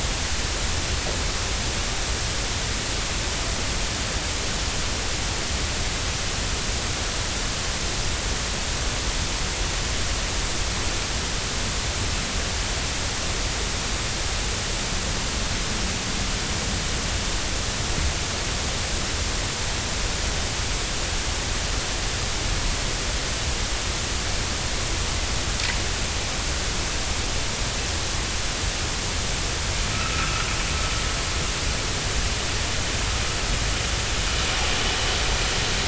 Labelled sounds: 29.9	30.5	vessel noise, 1.2 to 1.5 kHz

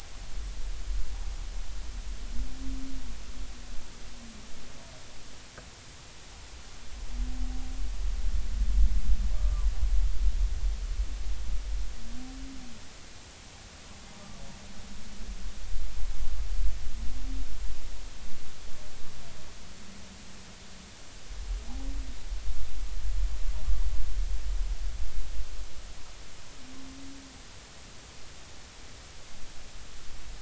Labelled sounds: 9.3	9.7	humpback whale, 1.1 to 1.2 kHz

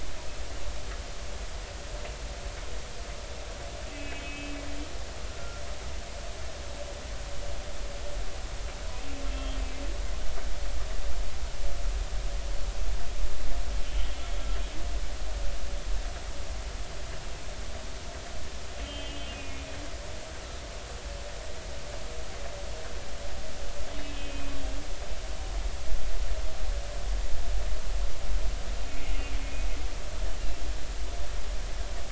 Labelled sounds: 3.9	4.5	humpback whale, 2.2 to 2.7 kHz
5.3	5.6	humpback whale, 1.3 to 1.5 kHz
9.3	9.6	humpback whale, 3.1 to 3.3 kHz
18.8	19.2	humpback whale, 2.7 to 3.2 kHz
24.0	24.5	humpback whale, 2.5 to 2.8 kHz
28.8	29.1	humpback whale, 2.46 to 2.53 kHz

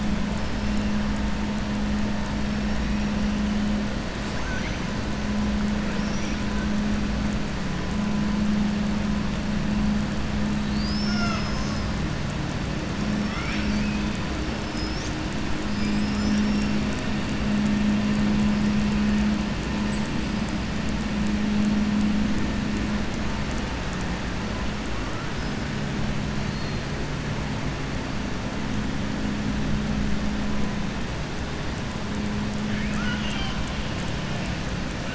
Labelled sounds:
4.3	4.8	killer whale, southern resident, 1.4 to 4.3 kHz
13.2	14.1	killer whale, southern resident, 1.2 to 6.1 kHz
32.7	33.6	killer whale, southern resident, 0.80 to 7.9 kHz

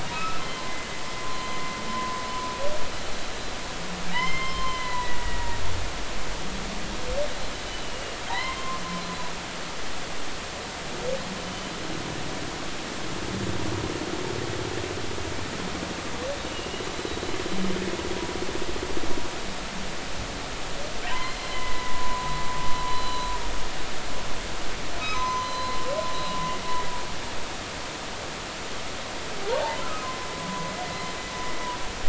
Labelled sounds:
0.1	0.4	humpback whale, 1.2 to 2.7 kHz
1.2	2.2	humpback whale, 0.96 to 1.1 kHz
4.1	5.6	humpback whale, 0.93 to 4.2 kHz
7.8	8.8	humpback whale, 0.80 to 3.2 kHz
11.4	11.7	humpback whale, 3.0 to 3.1 kHz
17.4	17.7	humpback whale, 2.7 to 2.9 kHz
21.1	22.4	humpback whale, 0.90 to 4.2 kHz
22.9	23.3	humpback whale, 3.9 to 4.1 kHz
25.0	25.8	humpback whale, 0.96 to 6.1 kHz
29.5	30.1	humpback whale, 0.80 to 1.4 kHz
30.4	30.7	humpback whale, 0.96 to 1.1 kHz

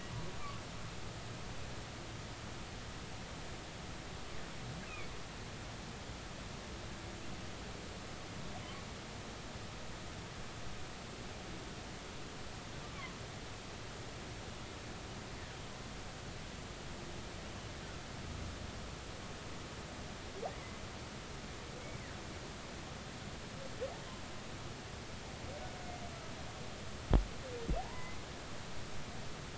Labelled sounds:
4.9	5.1	humpback whale, 2.2 to 2.7 kHz
12.9	13.2	humpback whale, 0.96 to 1.2 kHz
27.8	28.2	humpback whale, 0.80 to 2.1 kHz

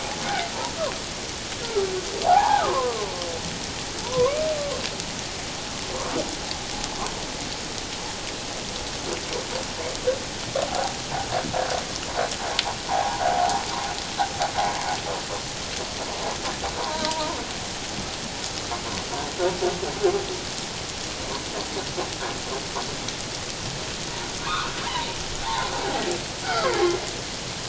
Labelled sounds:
2.2	2.9	humpback whale, 0.78 to 1.8 kHz
4.0	4.4	humpback whale, 0.88 to 1.2 kHz
10.7	10.9	humpback whale, 0.78 to 1.0 kHz
12.9	13.6	humpback whale, 0.78 to 1.1 kHz
16.8	17.4	humpback whale, 0.88 to 1.1 kHz
24.4	25.7	humpback whale, 0.78 to 2.7 kHz
26.4	26.8	humpback whale, 0.91 to 2.3 kHz

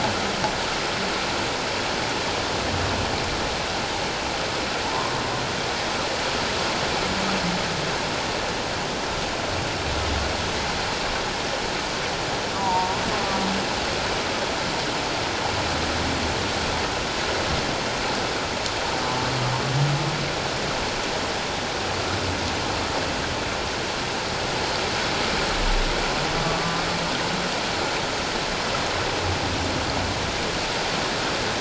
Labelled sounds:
4.8	5.1	humpback whale, 0.84 to 1.1 kHz
12.6	13.0	humpback whale, 0.84 to 1.1 kHz
26.4	26.9	humpback whale, 1.1 to 1.2 kHz

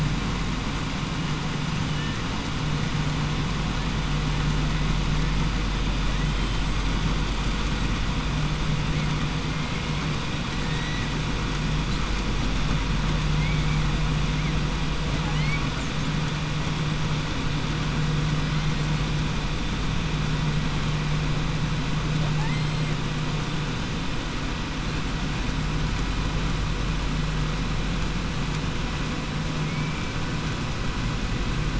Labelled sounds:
15.1	15.7	killer whale, southern resident, 0.80 to 4.6 kHz
29.6	30.0	killer whale, southern resident, 2.1 to 3.0 kHz

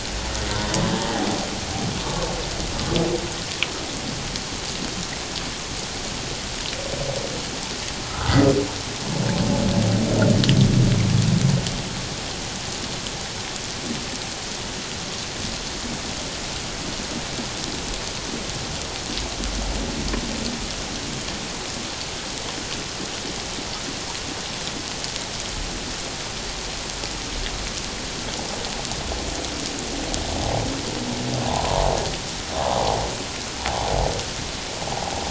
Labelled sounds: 0.5	1.3	humpback whale, 0.78 to 1.1 kHz
8.0	8.4	humpback whale, 1.2 to 1.6 kHz
31.4	31.9	humpback whale, 0.78 to 1.1 kHz
32.5	32.8	humpback whale, 0.84 to 1.2 kHz

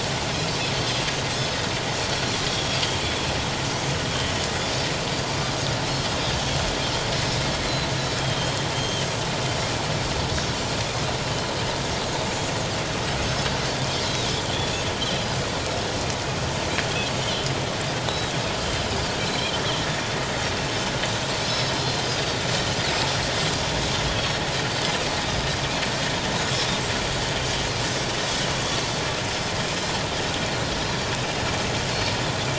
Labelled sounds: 2.5	2.8	Pacific white-sided dolphin, 3.2 to 5.7 kHz
7.6	9.1	Pacific white-sided dolphin, 3.0 to 4.2 kHz
14.0	14.3	Pacific white-sided dolphin, 3.6 to 4.1 kHz
17.2	17.5	Pacific white-sided dolphin, 2.9 to 3.3 kHz
18.1	18.3	Pacific white-sided dolphin, 3.8 to 4.0 kHz
18.9	19.2	Pacific white-sided dolphin, 4.1 to 4.6 kHz
21.5	22.0	Pacific white-sided dolphin, 4.0 to 5.4 kHz
24.1	24.4	Pacific white-sided dolphin, 3.2 to 4.5 kHz

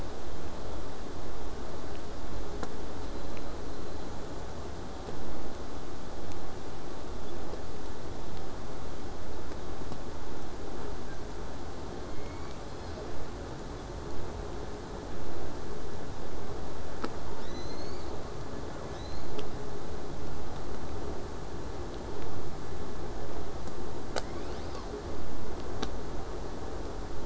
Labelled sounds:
3.0	4.1	killer whale, southern resident, J pod, whistle, 3.7 to 4.4 kHz
5.1	10.1	vessel noise, 0 to 8.0 kHz
11.9	13.2	killer whale, southern resident, J pod, call S01, 0.81 to 7.3 kHz
18.9	19.5	killer whale, southern resident, J pod, 1.0 to 7.1 kHz

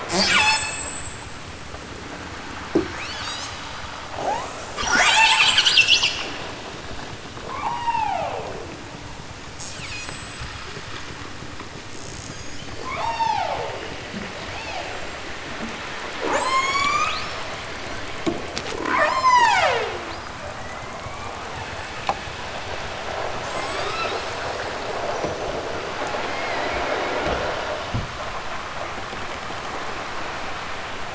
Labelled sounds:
0.0	1.4	killer whale, southern Alaska resident, 0.32 to 8.0 kHz
2.8	3.6	killer whale, southern Alaska resident, 1.2 to 8.0 kHz
4.1	6.2	killer whale, southern Alaska resident, 0.18 to 8.0 kHz
7.5	8.7	killer whale, southern Alaska resident, 0.09 to 8.0 kHz
9.5	10.7	killer whale, southern Alaska resident, 1.1 to 8.0 kHz
11.9	13.8	killer whale, southern Alaska resident, 0.37 to 8.0 kHz
14.4	15.4	killer whale, southern Alaska resident, 0.28 to 7.9 kHz
16.2	17.4	killer whale, southern Alaska resident, 0.32 to 8.0 kHz
18.7	21.5	killer whale, southern Alaska resident, 0.23 to 8.0 kHz
23.4	24.7	killer whale, southern Alaska resident, 0.69 to 8.0 kHz

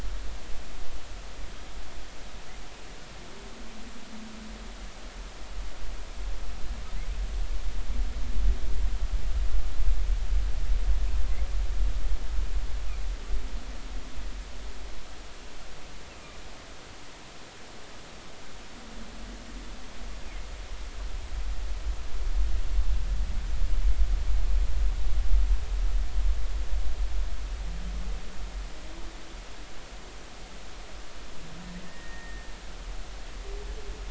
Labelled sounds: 31.9	32.5	humpback whale, 1.8 to 2.0 kHz

